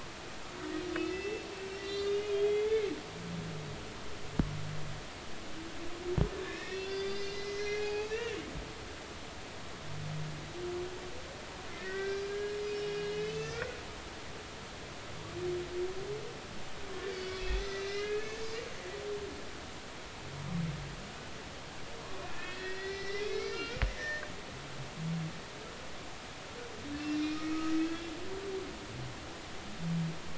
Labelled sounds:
0.9	2.9	humpback whale, 1.9 to 4.9 kHz
6.4	8.4	humpback whale, 0.80 to 5.9 kHz
11.8	13.8	humpback whale, 1.3 to 6.4 kHz
17.1	18.6	humpback whale, 1.6 to 5.0 kHz
22.0	24.2	humpback whale, 0.99 to 5.7 kHz
26.9	27.5	humpback whale, 2.6 to 5.3 kHz
27.8	28.1	humpback whale, 1.6 to 3.5 kHz

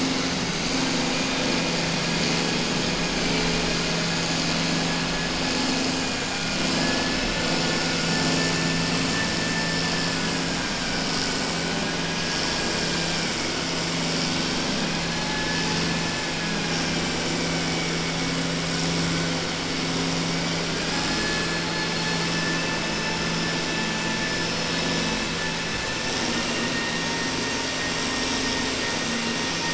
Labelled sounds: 15.2	17.1	vessel noise, 0.82 to 2.6 kHz

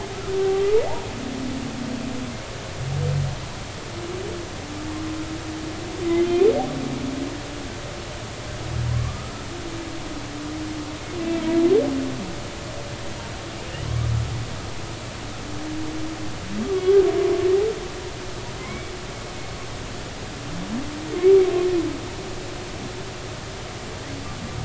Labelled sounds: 7.0	7.3	humpback whale, 2.0 to 2.2 kHz
9.0	9.5	humpback whale, 1.1 to 1.4 kHz
16.6	17.0	humpback whale, 1.1 to 1.3 kHz
18.6	18.9	humpback whale, 2.0 to 2.3 kHz
21.2	21.5	humpback whale, 2.1 to 2.4 kHz

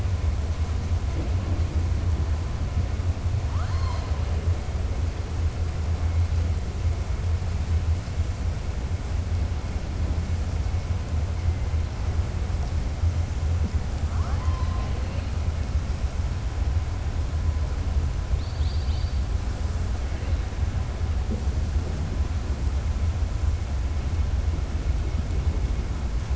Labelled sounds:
3.4	4.2	killer whale, southern resident, 0.68 to 5.4 kHz
14.0	14.9	killer whale, southern resident, 0.66 to 4.2 kHz
18.3	19.2	killer whale, southern resident, 3.1 to 4.8 kHz

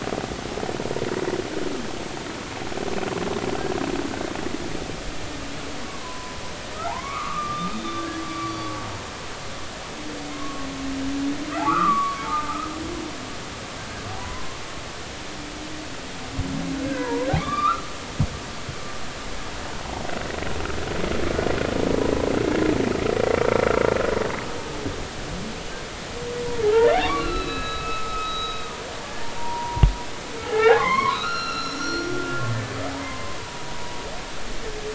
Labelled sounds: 5.8	6.4	humpback whale, 0.93 to 1.2 kHz
6.9	8.7	humpback whale, 0.80 to 4.6 kHz
10.3	10.7	humpback whale, 1.0 to 1.2 kHz
11.6	12.7	humpback whale, 0.83 to 1.5 kHz
13.8	14.6	humpback whale, 0.93 to 1.7 kHz
17.0	17.9	humpback whale, 0.86 to 3.9 kHz
26.5	28.7	humpback whale, 0.80 to 5.2 kHz
29.4	32.1	humpback whale, 0.80 to 6.9 kHz
33.0	34.0	humpback whale, 0.90 to 1.1 kHz

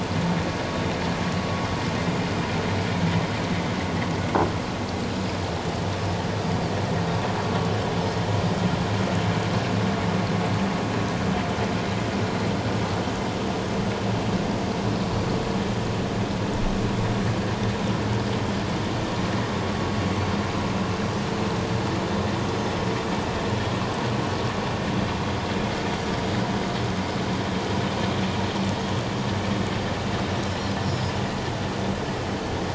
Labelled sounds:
30.8	31.1	Pacific white-sided dolphin, 4.8 to 7.0 kHz

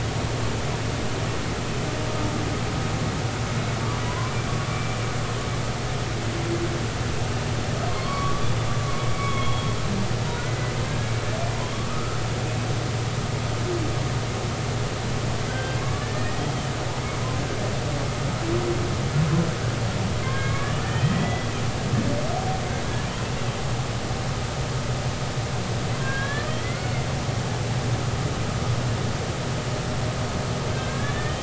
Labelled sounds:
4.0	5.0	humpback whale, 0.93 to 2.4 kHz
7.9	8.5	humpback whale, 1.0 to 1.2 kHz
9.1	9.7	humpback whale, 1.1 to 3.4 kHz
10.4	11.1	humpback whale, 1.6 to 2.0 kHz
11.9	12.2	humpback whale, 1.2 to 1.5 kHz
15.5	16.7	humpback whale, 1.1 to 3.3 kHz
20.2	21.5	humpback whale, 1.1 to 3.2 kHz
26.0	27.1	humpback whale, 1.3 to 3.5 kHz
30.7	31.4	humpback whale, 1.5 to 1.9 kHz

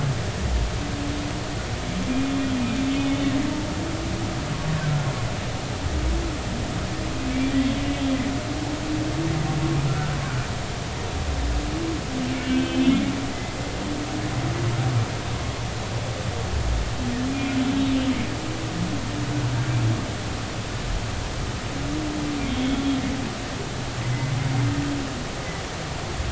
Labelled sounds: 7.3	7.8	humpback whale, 2.2 to 3.4 kHz
9.9	10.1	humpback whale, 1.3 to 1.4 kHz
12.4	13.6	humpback whale, 1.5 to 3.4 kHz
22.4	23.0	humpback whale, 3.1 to 3.5 kHz

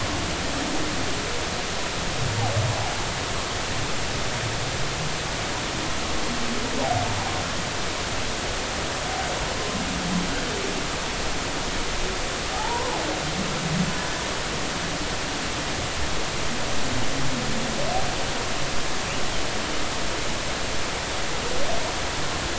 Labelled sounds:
12.5	13.0	humpback whale, 0.80 to 1.1 kHz

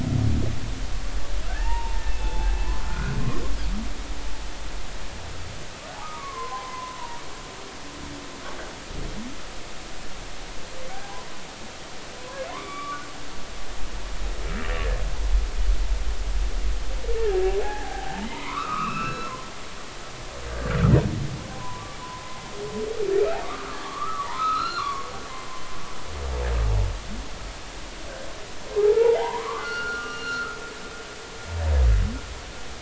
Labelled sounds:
1.5	3.2	humpback whale, 0.80 to 2.7 kHz
6.0	7.0	humpback whale, 0.93 to 2.3 kHz
11.0	11.3	humpback whale, 0.80 to 1.1 kHz
12.2	13.0	humpback whale, 0.93 to 3.6 kHz
17.6	19.3	humpback whale, 0.80 to 2.8 kHz
21.5	21.9	humpback whale, 0.90 to 1.1 kHz
23.4	25.1	humpback whale, 0.83 to 4.4 kHz
28.8	30.6	humpback whale, 0.80 to 4.6 kHz

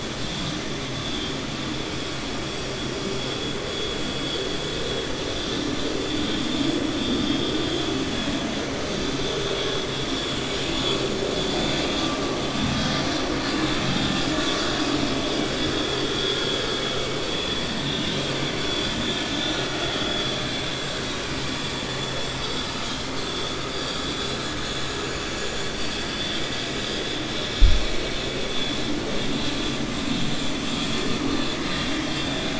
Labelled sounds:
10.4	11.0	vessel noise, 2.3 to 4.6 kHz
18.6	20.6	vessel noise, 0.61 to 4.2 kHz
25.2	25.7	vessel noise, 5.8 to 7.5 kHz

